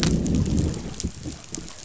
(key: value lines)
label: biophony, growl
recorder: SoundTrap 500